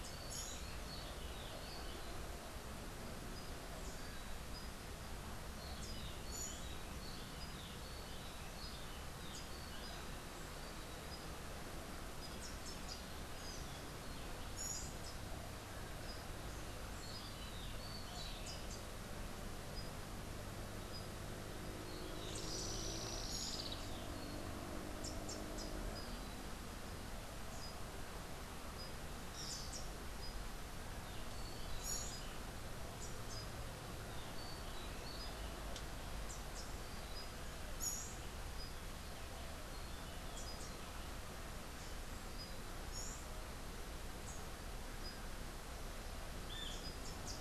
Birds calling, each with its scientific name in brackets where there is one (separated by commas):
Rufous-breasted Wren (Pheugopedius rutilus), Orange-billed Nightingale-Thrush (Catharus aurantiirostris), Olivaceous Woodcreeper (Sittasomus griseicapillus), Rufous-capped Warbler (Basileuterus rufifrons), Buff-throated Saltator (Saltator maximus)